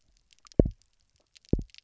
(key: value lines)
label: biophony, double pulse
recorder: SoundTrap 300